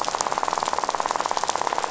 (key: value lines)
label: biophony, rattle
recorder: SoundTrap 500